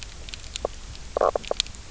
{"label": "biophony, knock croak", "recorder": "SoundTrap 300"}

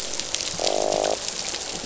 {"label": "biophony, croak", "recorder": "SoundTrap 500"}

